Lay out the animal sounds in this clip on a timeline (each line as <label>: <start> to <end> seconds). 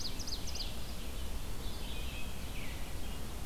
Ovenbird (Seiurus aurocapilla): 0.0 to 0.9 seconds
Red-eyed Vireo (Vireo olivaceus): 0.0 to 3.5 seconds
American Robin (Turdus migratorius): 1.6 to 3.0 seconds